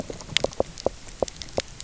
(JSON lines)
{"label": "biophony, knock", "recorder": "SoundTrap 300"}